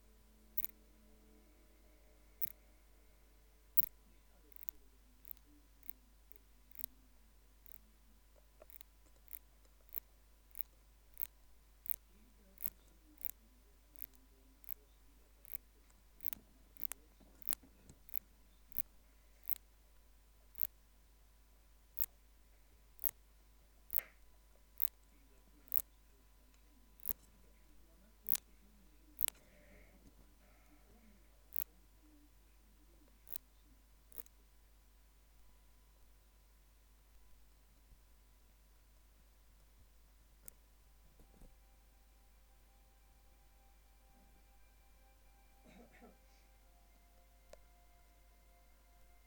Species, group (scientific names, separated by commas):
Phaneroptera nana, Orthoptera